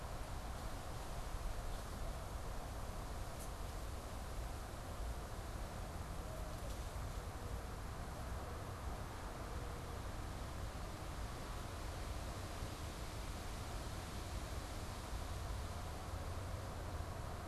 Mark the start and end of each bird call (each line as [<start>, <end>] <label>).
[8.10, 9.90] Mourning Dove (Zenaida macroura)